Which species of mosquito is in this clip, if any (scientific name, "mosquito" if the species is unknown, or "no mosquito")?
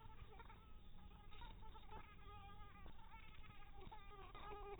mosquito